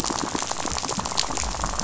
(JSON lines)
{"label": "biophony, rattle", "recorder": "SoundTrap 500"}
{"label": "biophony", "recorder": "SoundTrap 500"}